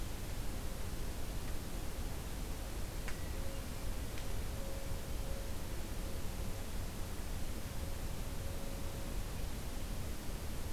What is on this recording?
Hermit Thrush